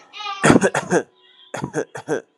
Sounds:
Throat clearing